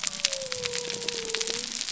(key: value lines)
label: biophony
recorder: SoundTrap 300